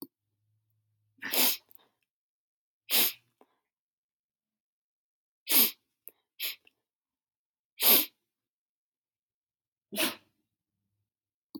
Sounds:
Sniff